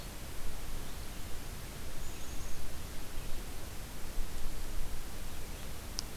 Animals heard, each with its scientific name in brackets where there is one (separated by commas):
Black-capped Chickadee (Poecile atricapillus)